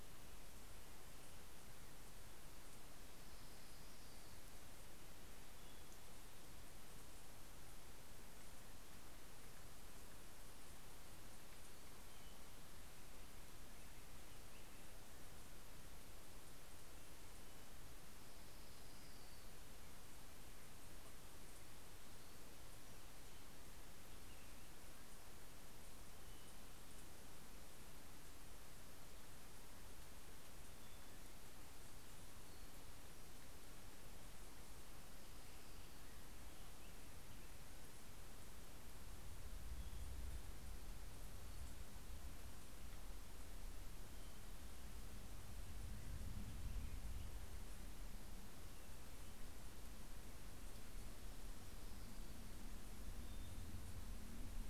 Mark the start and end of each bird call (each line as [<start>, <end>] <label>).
[2.14, 4.74] Orange-crowned Warbler (Leiothlypis celata)
[11.84, 15.84] Black-headed Grosbeak (Pheucticus melanocephalus)
[17.74, 20.04] Orange-crowned Warbler (Leiothlypis celata)